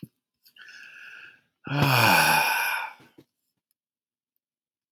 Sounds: Sigh